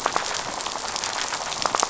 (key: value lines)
label: biophony, rattle
recorder: SoundTrap 500